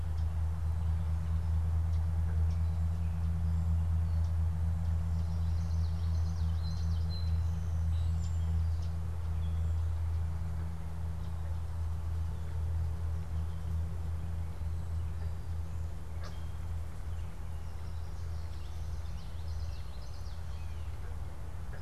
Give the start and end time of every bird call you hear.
[0.00, 7.08] Common Yellowthroat (Geothlypis trichas)
[6.47, 8.97] Song Sparrow (Melospiza melodia)
[18.57, 20.48] Common Yellowthroat (Geothlypis trichas)

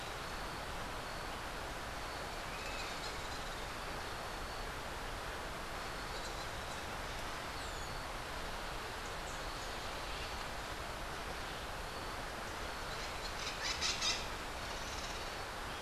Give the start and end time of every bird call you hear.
[7.46, 8.15] Rose-throated Becard (Pachyramphus aglaiae)
[12.96, 14.26] Crimson-fronted Parakeet (Psittacara finschi)

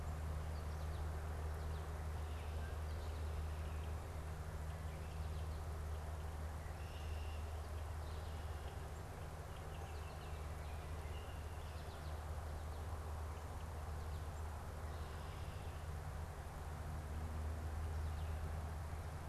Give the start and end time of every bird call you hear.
[6.39, 7.59] Red-winged Blackbird (Agelaius phoeniceus)

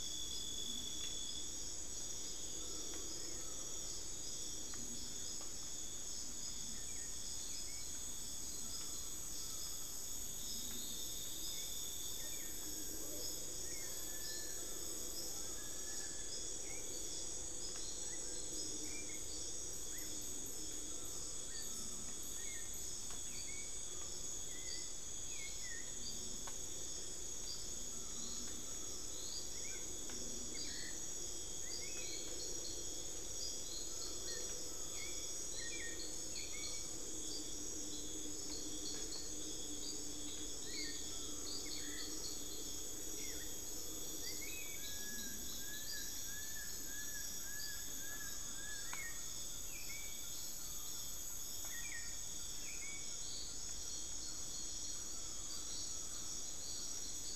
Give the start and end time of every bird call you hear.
[0.00, 57.35] Buckley's Forest-Falcon (Micrastur buckleyi)
[6.11, 57.35] Black-billed Thrush (Turdus ignobilis)
[10.11, 12.81] unidentified bird
[11.91, 17.11] Long-billed Woodcreeper (Nasica longirostris)
[15.01, 17.81] unidentified bird
[29.41, 30.01] unidentified bird
[44.51, 49.31] Long-billed Woodcreeper (Nasica longirostris)
[45.81, 55.31] Ferruginous Pygmy-Owl (Glaucidium brasilianum)

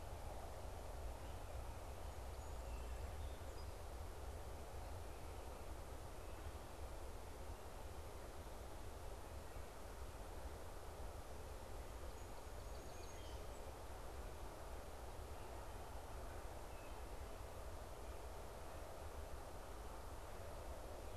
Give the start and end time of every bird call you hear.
[1.99, 3.99] Song Sparrow (Melospiza melodia)
[11.79, 13.79] Song Sparrow (Melospiza melodia)

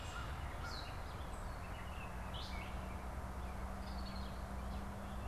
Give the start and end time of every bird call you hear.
[0.50, 5.27] Gray Catbird (Dumetella carolinensis)

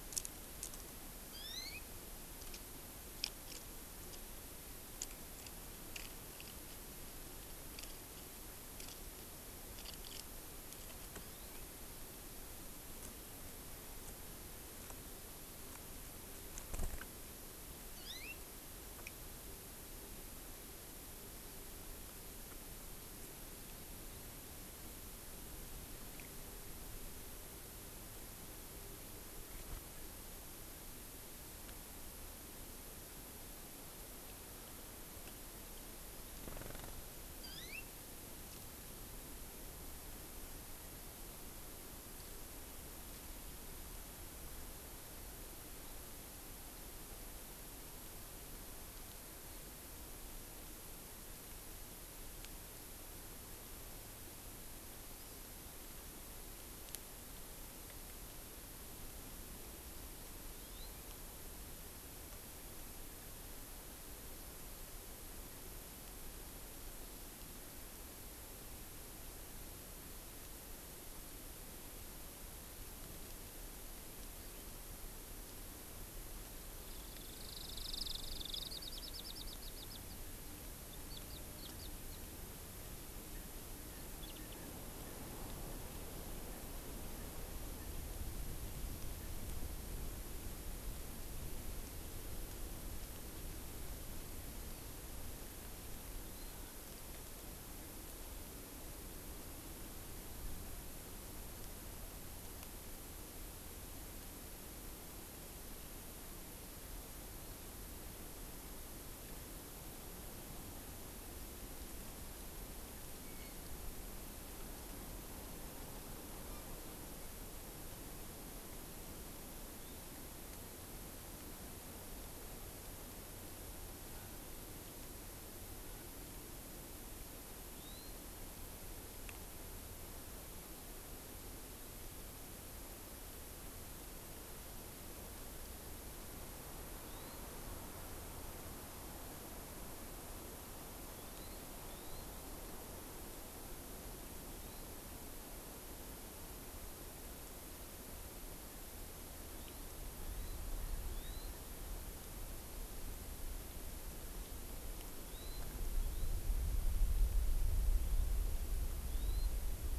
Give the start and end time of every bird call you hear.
[1.21, 1.91] Hawaii Amakihi (Chlorodrepanis virens)
[17.91, 18.41] Hawaii Amakihi (Chlorodrepanis virens)
[37.41, 37.91] Hawaii Amakihi (Chlorodrepanis virens)
[60.51, 61.01] Hawaii Amakihi (Chlorodrepanis virens)
[76.81, 80.21] Common Waxbill (Estrilda astrild)
[80.91, 82.21] Common Waxbill (Estrilda astrild)
[82.81, 85.21] Erckel's Francolin (Pternistis erckelii)
[84.11, 84.61] Common Waxbill (Estrilda astrild)
[86.41, 88.01] Erckel's Francolin (Pternistis erckelii)
[127.71, 128.21] Hawaii Amakihi (Chlorodrepanis virens)
[137.01, 137.41] Hawaii Amakihi (Chlorodrepanis virens)
[141.11, 142.31] Hawaii Amakihi (Chlorodrepanis virens)
[144.61, 144.91] Hawaii Amakihi (Chlorodrepanis virens)
[149.51, 149.91] Hawaii Amakihi (Chlorodrepanis virens)
[150.21, 150.61] Hawaii Amakihi (Chlorodrepanis virens)
[151.01, 151.51] Hawaii Amakihi (Chlorodrepanis virens)
[155.21, 156.41] Hawaii Amakihi (Chlorodrepanis virens)
[159.01, 159.51] Hawaii Amakihi (Chlorodrepanis virens)

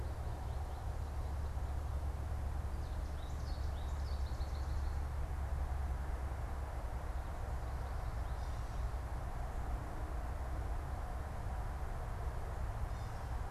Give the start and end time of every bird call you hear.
[2.39, 4.99] American Goldfinch (Spinus tristis)
[7.99, 13.49] Gray Catbird (Dumetella carolinensis)

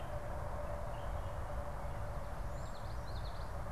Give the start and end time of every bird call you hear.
[0.00, 2.96] Cedar Waxwing (Bombycilla cedrorum)
[2.36, 3.66] Common Yellowthroat (Geothlypis trichas)

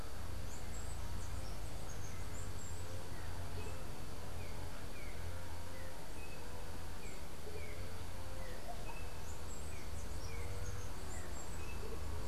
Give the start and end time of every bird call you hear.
[0.00, 3.35] unidentified bird
[3.25, 12.28] Yellow-backed Oriole (Icterus chrysater)
[9.14, 12.28] unidentified bird

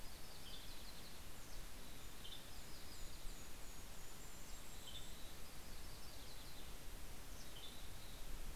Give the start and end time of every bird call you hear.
[0.00, 3.95] Yellow-rumped Warbler (Setophaga coronata)
[0.15, 0.85] Western Tanager (Piranga ludoviciana)
[1.45, 6.45] Golden-crowned Kinglet (Regulus satrapa)
[1.75, 2.85] Western Tanager (Piranga ludoviciana)
[4.25, 5.45] Western Tanager (Piranga ludoviciana)
[4.35, 8.55] Yellow-rumped Warbler (Setophaga coronata)
[7.25, 8.15] Western Tanager (Piranga ludoviciana)

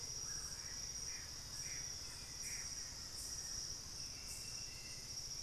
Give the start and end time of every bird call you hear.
[0.00, 0.90] Screaming Piha (Lipaugus vociferans)
[0.90, 2.70] Gray Antbird (Cercomacra cinerascens)
[2.70, 5.42] Hauxwell's Thrush (Turdus hauxwelli)

